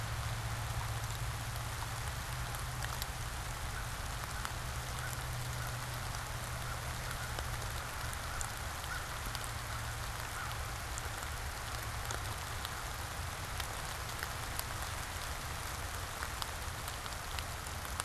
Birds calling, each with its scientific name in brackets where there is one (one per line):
American Crow (Corvus brachyrhynchos)